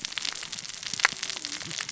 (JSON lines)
{"label": "biophony, cascading saw", "recorder": "SoundTrap 600 or HydroMoth"}